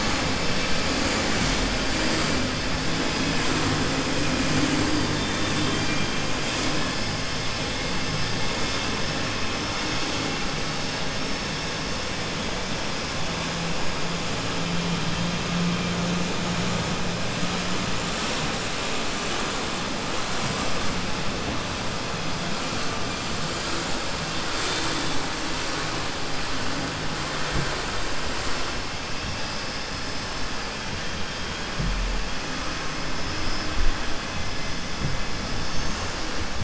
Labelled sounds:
5.5	6.1	vessel noise, 1.6 to 3.6 kHz

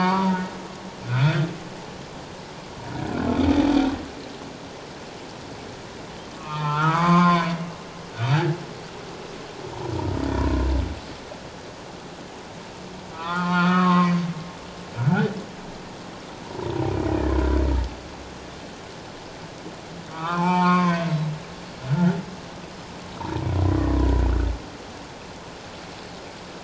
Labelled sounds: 1.0	1.5	humpback whale, 1.3 to 2.6 kHz
6.3	7.6	humpback whale, 0.84 to 4.8 kHz
13.1	14.1	humpback whale, 0.81 to 4.7 kHz
15.0	15.3	humpback whale, 1.3 to 1.6 kHz
20.1	21.0	humpback whale, 0.81 to 4.7 kHz
21.9	22.1	humpback whale, 1.3 to 1.6 kHz
23.2	24.1	humpback whale, 0.84 to 2.0 kHz

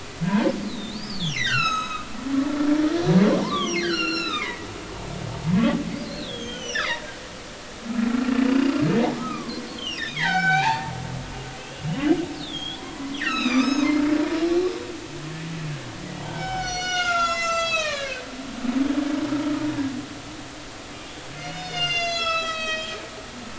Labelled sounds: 0.2	2.1	humpback whale, 1.2 to 8.0 kHz
3.4	4.7	humpback whale, 0.80 to 7.1 kHz
6.0	7.1	humpback whale, 1.7 to 6.2 kHz
8.5	10.9	humpback whale, 0.80 to 5.9 kHz
11.6	13.9	humpback whale, 0.93 to 6.7 kHz
16.2	18.2	humpback whale, 0.80 to 7.5 kHz
20.9	23.0	humpback whale, 1.2 to 7.8 kHz

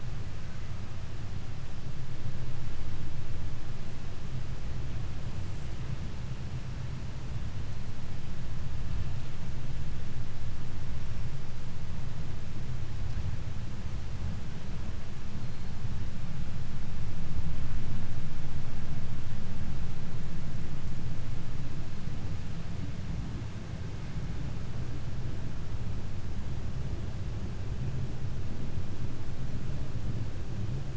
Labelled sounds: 15.4	15.8	killer whale, 3.8 to 4.7 kHz

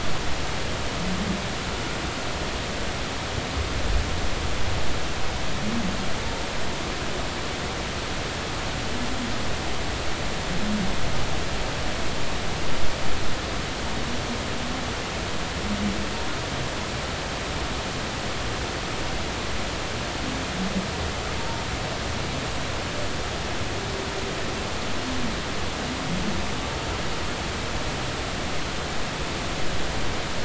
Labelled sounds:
21.4	21.6	humpback whale, 0.86 to 0.96 kHz

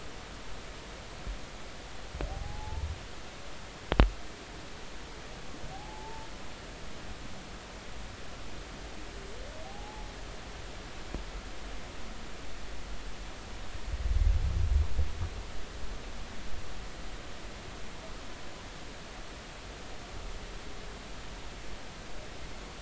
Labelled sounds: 2.3	2.9	humpback whale, 0.80 to 0.93 kHz
5.7	6.3	humpback whale, 0.80 to 0.96 kHz
9.6	10.1	humpback whale, 0.80 to 0.90 kHz

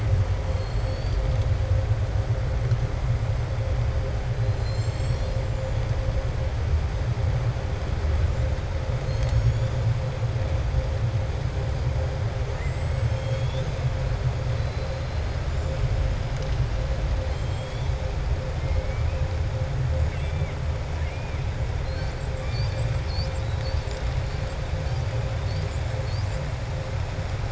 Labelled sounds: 0.5	1.2	killer whale, southern resident, 3.4 to 5.5 kHz
12.5	13.7	killer whale, southern resident, 2.2 to 7.8 kHz
14.5	15.3	killer whale, southern resident, 3.7 to 4.5 kHz
17.2	17.9	killer whale, southern resident, 3.2 to 7.8 kHz

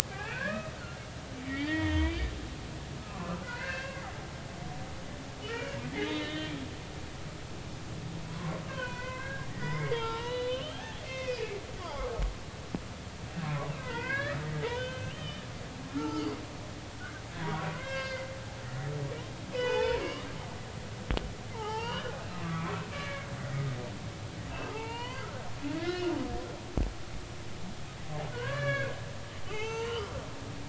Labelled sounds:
0.1	0.7	humpback whale, 1.3 to 2.8 kHz
1.5	2.3	humpback whale, 0.90 to 3.6 kHz
3.0	4.1	humpback whale, 0.96 to 2.8 kHz
5.5	6.5	humpback whale, 1.3 to 4.1 kHz
8.3	12.0	humpback whale, 0.83 to 4.3 kHz
13.7	15.4	humpback whale, 0.86 to 3.6 kHz
15.9	16.4	humpback whale, 1.2 to 4.9 kHz
17.4	18.3	humpback whale, 0.90 to 4.9 kHz
18.6	20.3	humpback whale, 0.80 to 5.1 kHz
21.0	22.4	humpback whale, 0.80 to 3.2 kHz
22.9	23.3	humpback whale, 1.6 to 2.4 kHz
24.7	26.1	humpback whale, 0.83 to 5.1 kHz
28.3	28.9	humpback whale, 0.93 to 4.7 kHz
29.5	30.1	humpback whale, 0.80 to 4.6 kHz

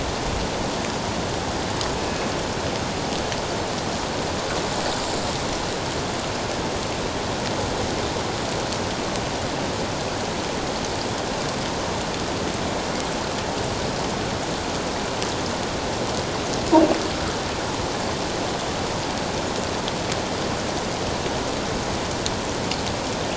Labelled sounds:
1.9	2.3	killer whale, northern resident, G clan, call N24ii, 2.5 to 2.6 kHz

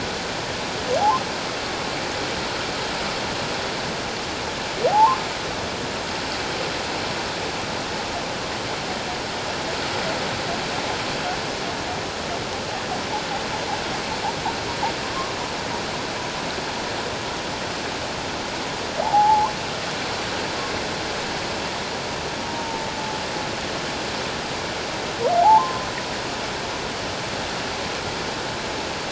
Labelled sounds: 4.9	5.2	humpback whale, 0.78 to 1.2 kHz
19.0	19.5	humpback whale, 0.78 to 1.2 kHz
22.5	22.8	humpback whale, 0.88 to 0.97 kHz
25.4	25.9	humpback whale, 0.78 to 1.1 kHz

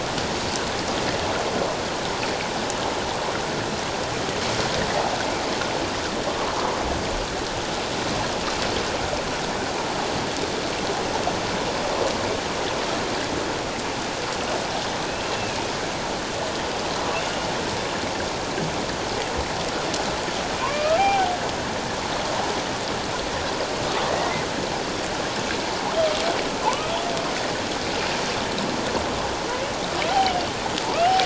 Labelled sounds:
15.1	15.7	humpback whale, 2.4 to 2.8 kHz
20.6	21.3	humpback whale, 0.78 to 2.6 kHz
26.6	26.9	humpback whale, 0.81 to 1.3 kHz
30.1	30.5	humpback whale, 2.8 to 3.2 kHz

